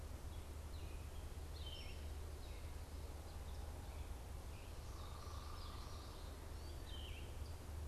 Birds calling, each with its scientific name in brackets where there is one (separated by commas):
unidentified bird, Yellow-throated Vireo (Vireo flavifrons), Common Yellowthroat (Geothlypis trichas)